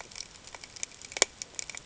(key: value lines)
label: ambient
recorder: HydroMoth